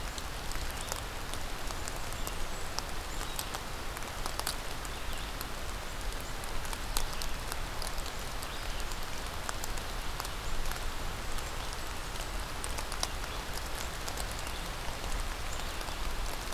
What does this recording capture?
Blackburnian Warbler